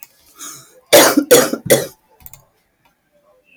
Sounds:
Cough